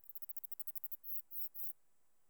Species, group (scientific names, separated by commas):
Neocallicrania selligera, Orthoptera